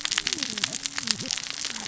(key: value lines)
label: biophony, cascading saw
recorder: SoundTrap 600 or HydroMoth